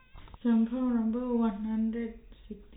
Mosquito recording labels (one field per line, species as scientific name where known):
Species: no mosquito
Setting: cup